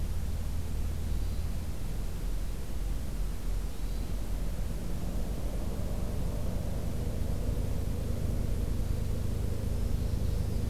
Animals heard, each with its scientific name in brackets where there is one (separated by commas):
Hermit Thrush (Catharus guttatus), Magnolia Warbler (Setophaga magnolia)